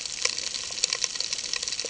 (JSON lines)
{"label": "ambient", "recorder": "HydroMoth"}